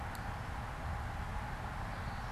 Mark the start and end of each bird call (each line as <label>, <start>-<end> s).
Common Yellowthroat (Geothlypis trichas), 1.8-2.3 s